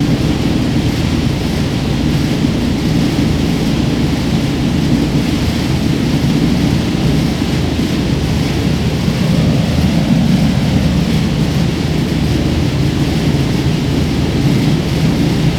Is the noise mostly steady?
yes